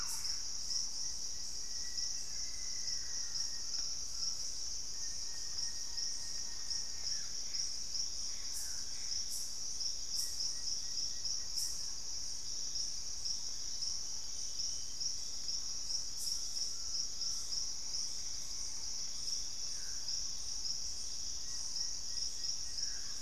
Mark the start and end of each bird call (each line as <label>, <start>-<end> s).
Thrush-like Wren (Campylorhynchus turdinus), 0.0-0.5 s
Purple-throated Fruitcrow (Querula purpurata), 0.0-1.6 s
Plain-winged Antshrike (Thamnophilus schistaceus), 0.5-12.2 s
Black-faced Antthrush (Formicarius analis), 1.4-4.0 s
Collared Trogon (Trogon collaris), 2.8-4.6 s
Gray Antbird (Cercomacra cinerascens), 6.8-9.4 s
Purple-throated Fruitcrow (Querula purpurata), 11.9-22.2 s
Collared Trogon (Trogon collaris), 16.5-17.6 s
Plain-winged Antshrike (Thamnophilus schistaceus), 21.2-23.2 s